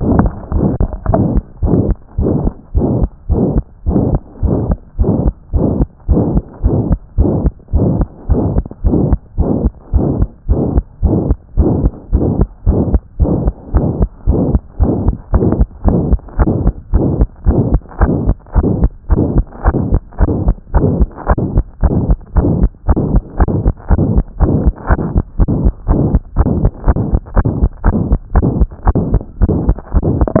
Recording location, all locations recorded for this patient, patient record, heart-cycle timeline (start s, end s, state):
tricuspid valve (TV)
aortic valve (AV)+pulmonary valve (PV)+tricuspid valve (TV)+mitral valve (MV)
#Age: Child
#Sex: Male
#Height: 92.0 cm
#Weight: 10.9 kg
#Pregnancy status: False
#Murmur: Present
#Murmur locations: aortic valve (AV)+mitral valve (MV)+pulmonary valve (PV)+tricuspid valve (TV)
#Most audible location: tricuspid valve (TV)
#Systolic murmur timing: Holosystolic
#Systolic murmur shape: Diamond
#Systolic murmur grading: III/VI or higher
#Systolic murmur pitch: High
#Systolic murmur quality: Harsh
#Diastolic murmur timing: nan
#Diastolic murmur shape: nan
#Diastolic murmur grading: nan
#Diastolic murmur pitch: nan
#Diastolic murmur quality: nan
#Outcome: Abnormal
#Campaign: 2014 screening campaign
0.00	1.10	unannotated
1.10	1.24	S1
1.24	1.32	systole
1.32	1.42	S2
1.42	1.64	diastole
1.64	1.78	S1
1.78	1.86	systole
1.86	1.96	S2
1.96	2.18	diastole
2.18	2.32	S1
2.32	2.42	systole
2.42	2.52	S2
2.52	2.76	diastole
2.76	2.88	S1
2.88	2.98	systole
2.98	3.08	S2
3.08	3.30	diastole
3.30	3.44	S1
3.44	3.54	systole
3.54	3.62	S2
3.62	3.88	diastole
3.88	4.02	S1
4.02	4.10	systole
4.10	4.20	S2
4.20	4.44	diastole
4.44	4.56	S1
4.56	4.68	systole
4.68	4.76	S2
4.76	5.00	diastole
5.00	5.14	S1
5.14	5.22	systole
5.22	5.32	S2
5.32	5.54	diastole
5.54	5.68	S1
5.68	5.78	systole
5.78	5.86	S2
5.86	6.10	diastole
6.10	6.24	S1
6.24	6.32	systole
6.32	6.42	S2
6.42	6.64	diastole
6.64	6.78	S1
6.78	6.88	systole
6.88	6.98	S2
6.98	7.18	diastole
7.18	7.32	S1
7.32	7.42	systole
7.42	7.52	S2
7.52	7.74	diastole
7.74	7.90	S1
7.90	7.98	systole
7.98	8.06	S2
8.06	8.30	diastole
8.30	8.42	S1
8.42	8.54	systole
8.54	8.64	S2
8.64	8.86	diastole
8.86	8.98	S1
8.98	9.08	systole
9.08	9.18	S2
9.18	9.38	diastole
9.38	9.50	S1
9.50	9.62	systole
9.62	9.70	S2
9.70	9.94	diastole
9.94	10.06	S1
10.06	10.18	systole
10.18	10.28	S2
10.28	10.50	diastole
10.50	10.62	S1
10.62	10.74	systole
10.74	10.84	S2
10.84	11.04	diastole
11.04	11.18	S1
11.18	11.28	systole
11.28	11.36	S2
11.36	11.58	diastole
11.58	11.72	S1
11.72	11.82	systole
11.82	11.92	S2
11.92	12.14	diastole
12.14	12.26	S1
12.26	12.38	systole
12.38	12.46	S2
12.46	12.68	diastole
12.68	12.80	S1
12.80	12.90	systole
12.90	13.00	S2
13.00	13.20	diastole
13.20	13.34	S1
13.34	13.44	systole
13.44	13.52	S2
13.52	13.74	diastole
13.74	13.88	S1
13.88	14.00	systole
14.00	14.08	S2
14.08	14.28	diastole
14.28	14.40	S1
14.40	14.50	systole
14.50	14.60	S2
14.60	14.80	diastole
14.80	14.94	S1
14.94	15.06	systole
15.06	15.14	S2
15.14	15.34	diastole
15.34	15.48	S1
15.48	15.58	systole
15.58	15.66	S2
15.66	15.86	diastole
15.86	16.00	S1
16.00	16.10	systole
16.10	16.18	S2
16.18	16.38	diastole
16.38	16.52	S1
16.52	16.64	systole
16.64	16.72	S2
16.72	16.94	diastole
16.94	17.08	S1
17.08	17.18	systole
17.18	17.28	S2
17.28	17.48	diastole
17.48	17.60	S1
17.60	17.72	systole
17.72	17.80	S2
17.80	18.00	diastole
18.00	18.14	S1
18.14	18.26	systole
18.26	18.36	S2
18.36	18.56	diastole
18.56	18.68	S1
18.68	18.80	systole
18.80	18.90	S2
18.90	19.10	diastole
19.10	19.24	S1
19.24	19.34	systole
19.34	19.44	S2
19.44	19.66	diastole
19.66	19.78	S1
19.78	19.90	systole
19.90	20.00	S2
20.00	20.20	diastole
20.20	20.32	S1
20.32	20.46	systole
20.46	20.54	S2
20.54	20.74	diastole
20.74	20.88	S1
20.88	20.98	systole
20.98	21.08	S2
21.08	21.28	diastole
21.28	21.40	S1
21.40	21.54	systole
21.54	21.64	S2
21.64	21.84	diastole
21.84	21.96	S1
21.96	22.08	systole
22.08	22.16	S2
22.16	22.36	diastole
22.36	22.50	S1
22.50	22.60	systole
22.60	22.70	S2
22.70	22.88	diastole
22.88	23.00	S1
23.00	23.12	systole
23.12	23.22	S2
23.22	23.40	diastole
23.40	23.50	S1
23.50	23.64	systole
23.64	23.72	S2
23.72	23.90	diastole
23.90	24.04	S1
24.04	24.14	systole
24.14	24.24	S2
24.24	24.42	diastole
24.42	24.54	S1
24.54	24.64	systole
24.64	24.72	S2
24.72	24.90	diastole
24.90	25.00	S1
25.00	25.14	systole
25.14	25.24	S2
25.24	25.40	diastole
25.40	25.50	S1
25.50	25.62	systole
25.62	25.72	S2
25.72	25.90	diastole
25.90	26.02	S1
26.02	26.12	systole
26.12	26.20	S2
26.20	26.38	diastole
26.38	26.50	S1
26.50	26.60	systole
26.60	26.70	S2
26.70	26.86	diastole
26.86	26.98	S1
26.98	27.10	systole
27.10	27.20	S2
27.20	27.36	diastole
27.36	27.48	S1
27.48	27.60	systole
27.60	27.70	S2
27.70	27.86	diastole
27.86	27.98	S1
27.98	28.10	systole
28.10	28.18	S2
28.18	28.34	diastole
28.34	28.48	S1
28.48	28.58	systole
28.58	28.68	S2
28.68	28.86	diastole
28.86	29.00	S1
29.00	29.12	systole
29.12	29.20	S2
29.20	29.42	diastole
29.42	29.54	S1
29.54	29.66	systole
29.66	29.76	S2
29.76	29.96	diastole
29.96	30.40	unannotated